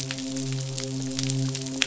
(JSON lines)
{"label": "biophony, midshipman", "recorder": "SoundTrap 500"}